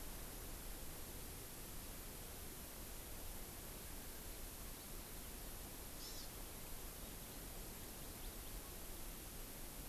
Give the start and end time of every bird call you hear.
[5.90, 6.30] Hawaii Amakihi (Chlorodrepanis virens)

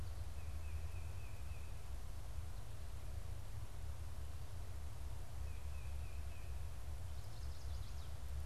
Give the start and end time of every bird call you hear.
[0.00, 2.00] Tufted Titmouse (Baeolophus bicolor)
[5.20, 6.90] Tufted Titmouse (Baeolophus bicolor)
[6.70, 8.40] Chestnut-sided Warbler (Setophaga pensylvanica)

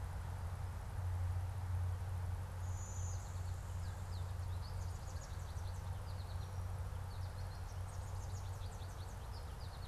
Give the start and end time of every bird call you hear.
[2.50, 3.70] Blue-winged Warbler (Vermivora cyanoptera)
[3.70, 9.87] American Goldfinch (Spinus tristis)

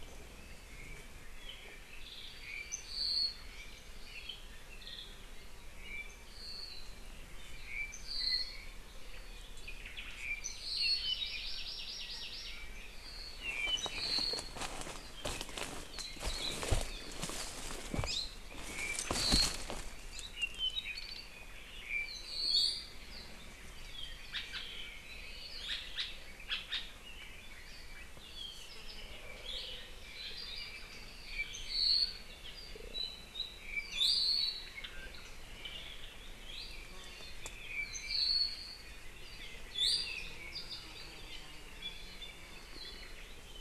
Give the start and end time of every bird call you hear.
[1.31, 5.31] Apapane (Himatione sanguinea)
[5.71, 7.11] Apapane (Himatione sanguinea)
[7.61, 8.81] Apapane (Himatione sanguinea)
[9.61, 10.31] Omao (Myadestes obscurus)
[10.11, 11.11] Apapane (Himatione sanguinea)
[10.61, 12.71] Hawaii Amakihi (Chlorodrepanis virens)
[12.41, 14.71] Apapane (Himatione sanguinea)
[16.21, 16.61] Hawaii Akepa (Loxops coccineus)
[18.01, 18.41] Hawaii Creeper (Loxops mana)
[18.61, 19.71] Apapane (Himatione sanguinea)
[20.01, 20.41] Hawaii Creeper (Loxops mana)
[20.31, 21.41] Apapane (Himatione sanguinea)
[21.71, 23.41] Apapane (Himatione sanguinea)
[22.41, 23.01] Iiwi (Drepanis coccinea)
[24.31, 24.71] Hawaii Elepaio (Chasiempis sandwichensis)
[25.61, 27.01] Hawaii Elepaio (Chasiempis sandwichensis)
[28.21, 29.31] Apapane (Himatione sanguinea)
[29.31, 29.81] Iiwi (Drepanis coccinea)
[29.91, 32.31] Apapane (Himatione sanguinea)
[32.91, 34.71] Apapane (Himatione sanguinea)
[33.81, 34.51] Iiwi (Drepanis coccinea)
[36.31, 36.81] Iiwi (Drepanis coccinea)
[37.31, 39.01] Apapane (Himatione sanguinea)
[39.71, 40.21] Iiwi (Drepanis coccinea)
[39.71, 41.71] Apapane (Himatione sanguinea)

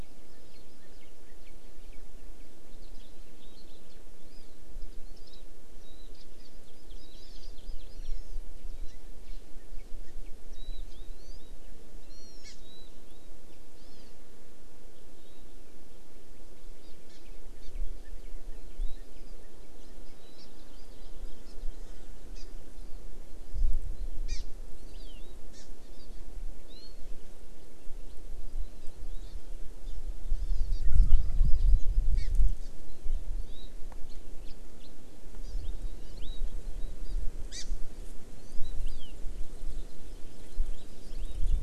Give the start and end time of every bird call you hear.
[2.70, 3.80] House Finch (Haemorhous mexicanus)
[4.20, 4.60] Hawaii Amakihi (Chlorodrepanis virens)
[5.00, 5.40] Hawaii Amakihi (Chlorodrepanis virens)
[6.40, 8.40] Hawaii Amakihi (Chlorodrepanis virens)
[10.50, 10.80] Warbling White-eye (Zosterops japonicus)
[11.20, 11.50] Hawaii Amakihi (Chlorodrepanis virens)
[12.00, 12.50] Hawaii Amakihi (Chlorodrepanis virens)
[12.60, 12.90] Warbling White-eye (Zosterops japonicus)
[13.80, 14.10] Hawaii Amakihi (Chlorodrepanis virens)
[16.80, 17.20] Hawaii Amakihi (Chlorodrepanis virens)
[17.60, 17.70] Hawaii Amakihi (Chlorodrepanis virens)
[20.40, 20.50] Hawaii Amakihi (Chlorodrepanis virens)
[21.40, 21.50] Hawaii Amakihi (Chlorodrepanis virens)
[22.30, 22.40] Hawaii Amakihi (Chlorodrepanis virens)
[24.30, 24.40] Hawaii Amakihi (Chlorodrepanis virens)
[24.80, 25.20] Hawaii Amakihi (Chlorodrepanis virens)
[25.50, 25.60] Hawaii Amakihi (Chlorodrepanis virens)
[30.30, 30.80] Hawaii Amakihi (Chlorodrepanis virens)
[30.80, 31.70] Wild Turkey (Meleagris gallopavo)
[32.20, 32.30] Hawaii Amakihi (Chlorodrepanis virens)
[33.40, 33.70] Hawaii Amakihi (Chlorodrepanis virens)
[34.40, 34.50] House Finch (Haemorhous mexicanus)
[35.40, 35.60] Hawaii Amakihi (Chlorodrepanis virens)
[37.00, 37.20] Hawaii Amakihi (Chlorodrepanis virens)
[37.50, 37.70] Hawaii Amakihi (Chlorodrepanis virens)
[38.40, 39.10] Hawaii Amakihi (Chlorodrepanis virens)

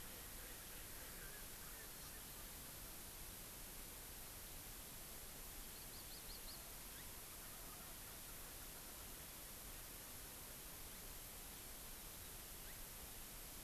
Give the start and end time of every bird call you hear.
[5.63, 6.73] Hawaii Amakihi (Chlorodrepanis virens)

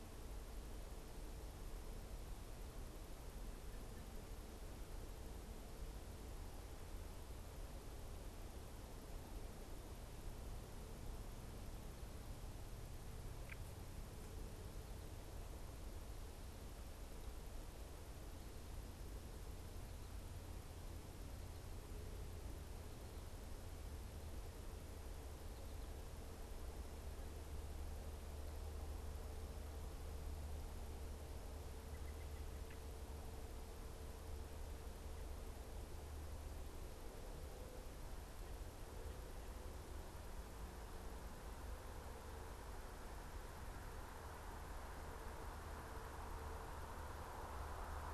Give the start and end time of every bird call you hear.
[31.52, 32.82] Mourning Dove (Zenaida macroura)

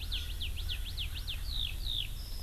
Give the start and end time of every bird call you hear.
[0.00, 1.35] Erckel's Francolin (Pternistis erckelii)
[0.00, 2.43] Eurasian Skylark (Alauda arvensis)

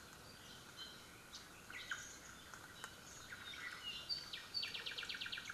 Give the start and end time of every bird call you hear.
[1.63, 2.13] Omao (Myadestes obscurus)
[1.83, 2.43] Warbling White-eye (Zosterops japonicus)
[2.93, 3.33] Warbling White-eye (Zosterops japonicus)
[3.23, 5.53] Apapane (Himatione sanguinea)

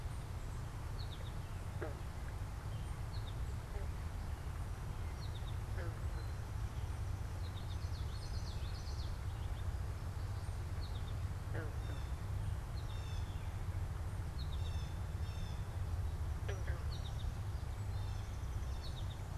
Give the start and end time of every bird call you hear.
[0.77, 11.27] American Goldfinch (Spinus tristis)
[7.46, 9.16] Common Yellowthroat (Geothlypis trichas)
[11.56, 19.16] Blue Jay (Cyanocitta cristata)

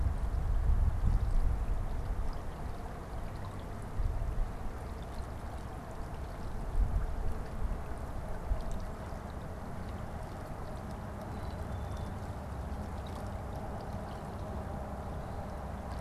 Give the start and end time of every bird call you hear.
[11.08, 12.18] Black-capped Chickadee (Poecile atricapillus)

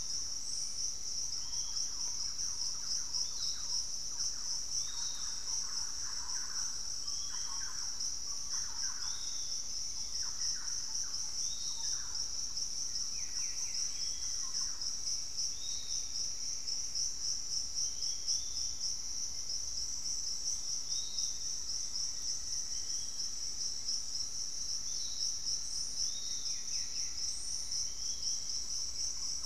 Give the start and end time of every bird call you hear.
[0.00, 15.27] Thrush-like Wren (Campylorhynchus turdinus)
[0.00, 29.45] Piratic Flycatcher (Legatus leucophaius)
[12.97, 15.47] Black-faced Antthrush (Formicarius analis)
[15.57, 17.17] Pygmy Antwren (Myrmotherula brachyura)
[21.17, 23.67] Black-faced Antthrush (Formicarius analis)
[24.57, 29.45] Gray Antwren (Myrmotherula menetriesii)
[28.47, 29.45] Thrush-like Wren (Campylorhynchus turdinus)

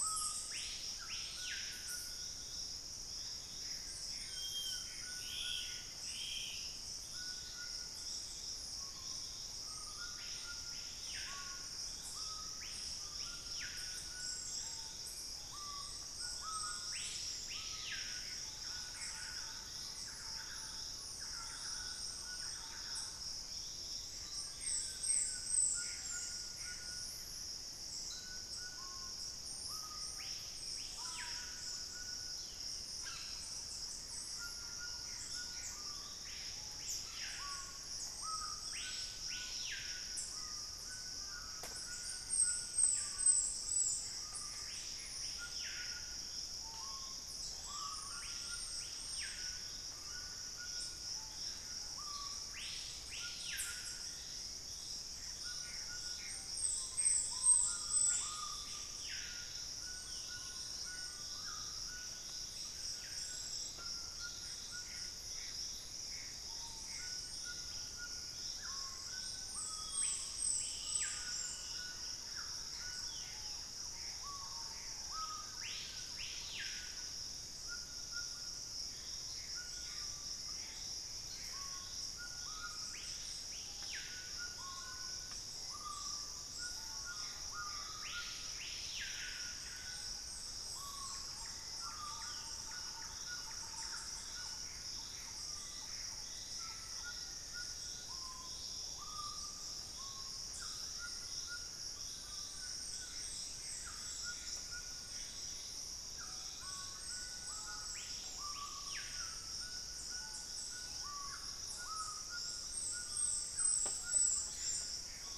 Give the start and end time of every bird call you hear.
[0.00, 19.58] Screaming Piha (Lipaugus vociferans)
[0.00, 115.37] White-throated Toucan (Ramphastos tucanus)
[3.48, 6.08] Gray Antbird (Cercomacra cinerascens)
[3.88, 6.98] Black-spotted Bare-eye (Phlegopsis nigromaculata)
[18.58, 23.18] Thrush-like Wren (Campylorhynchus turdinus)
[24.08, 26.08] Collared Trogon (Trogon collaris)
[24.18, 27.18] Gray Antbird (Cercomacra cinerascens)
[28.88, 100.28] Screaming Piha (Lipaugus vociferans)
[34.88, 36.08] Gray Antbird (Cercomacra cinerascens)
[43.88, 45.58] Gray Antbird (Cercomacra cinerascens)
[54.98, 57.28] Gray Antbird (Cercomacra cinerascens)
[64.78, 67.38] Gray Antbird (Cercomacra cinerascens)
[67.38, 68.08] Ash-throated Gnateater (Conopophaga peruviana)
[69.48, 72.08] Black-spotted Bare-eye (Phlegopsis nigromaculata)
[71.58, 72.48] unidentified bird
[72.58, 97.28] Gray Antbird (Cercomacra cinerascens)
[87.88, 109.78] Hauxwell's Thrush (Turdus hauxwelli)
[91.18, 95.08] Thrush-like Wren (Campylorhynchus turdinus)
[95.08, 97.78] Black-faced Antthrush (Formicarius analis)
[101.78, 103.58] Collared Trogon (Trogon collaris)
[102.78, 105.68] Gray Antbird (Cercomacra cinerascens)
[106.48, 115.37] Screaming Piha (Lipaugus vociferans)
[110.68, 111.68] unidentified bird
[114.28, 115.37] Gray Antbird (Cercomacra cinerascens)

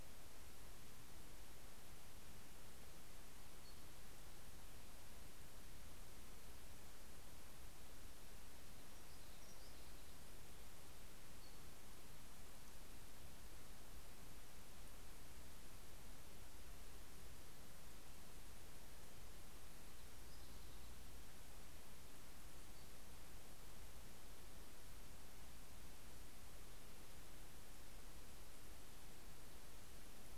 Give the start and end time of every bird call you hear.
[3.10, 4.40] Brown Creeper (Certhia americana)
[8.20, 12.10] Brown Creeper (Certhia americana)
[19.80, 23.20] Brown Creeper (Certhia americana)

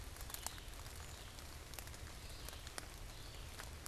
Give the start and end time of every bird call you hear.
[0.00, 3.87] Red-eyed Vireo (Vireo olivaceus)

